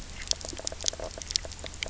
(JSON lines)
{"label": "biophony, knock croak", "recorder": "SoundTrap 300"}